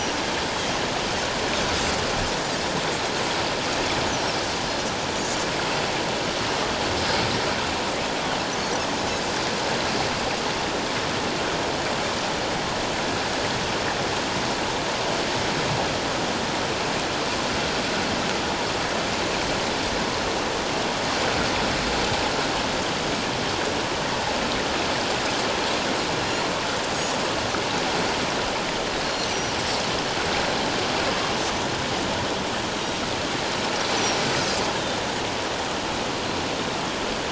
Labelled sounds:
29.0	29.5	Pacific white-sided dolphin, 4.2 to 6.3 kHz

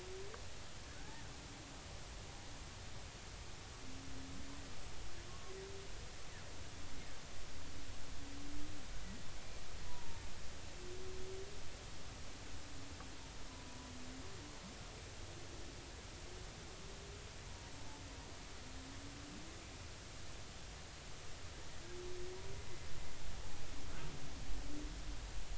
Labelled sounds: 1.0	1.2	humpback whale, 0.80 to 0.96 kHz
5.3	5.5	humpback whale, 1.0 to 1.2 kHz
9.8	10.2	humpback whale, 0.90 to 1.1 kHz
17.5	17.7	humpback whale, 0.90 to 1.0 kHz

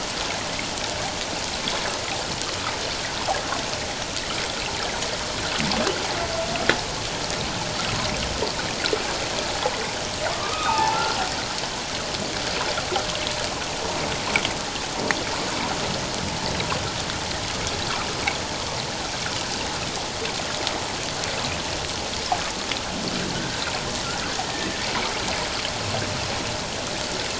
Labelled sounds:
10.3	11.0	humpback whale, 0.78 to 2.7 kHz
23.3	23.6	humpback whale, 1.4 to 1.6 kHz

